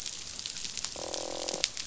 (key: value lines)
label: biophony, croak
recorder: SoundTrap 500